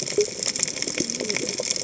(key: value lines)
label: biophony, cascading saw
recorder: HydroMoth